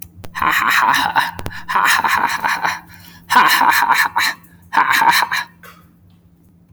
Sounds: Laughter